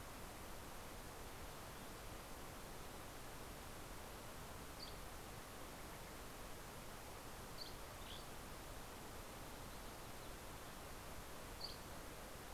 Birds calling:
Dusky Flycatcher (Empidonax oberholseri)

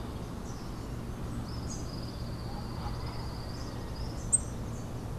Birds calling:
Tropical Kingbird (Tyrannus melancholicus)

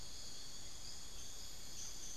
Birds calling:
Bartlett's Tinamou (Crypturellus bartletti), unidentified bird

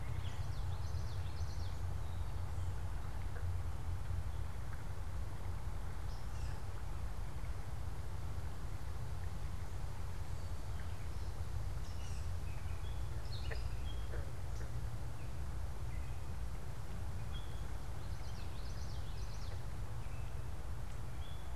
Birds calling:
Gray Catbird (Dumetella carolinensis), Common Yellowthroat (Geothlypis trichas)

